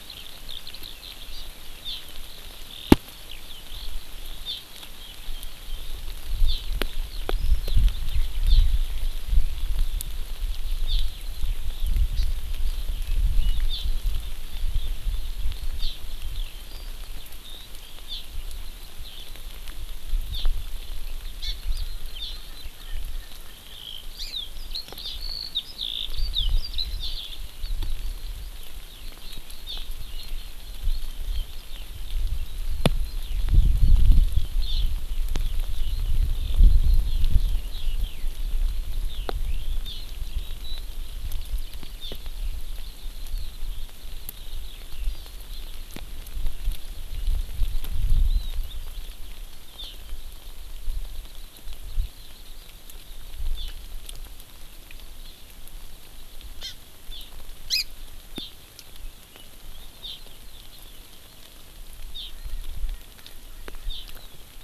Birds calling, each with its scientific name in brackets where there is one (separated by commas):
Erckel's Francolin (Pternistis erckelii), Eurasian Skylark (Alauda arvensis), Hawaii Amakihi (Chlorodrepanis virens)